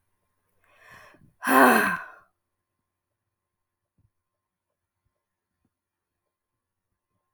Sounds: Sigh